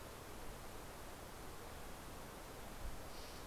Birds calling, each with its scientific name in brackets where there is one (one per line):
Steller's Jay (Cyanocitta stelleri)